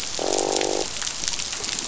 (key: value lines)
label: biophony, croak
recorder: SoundTrap 500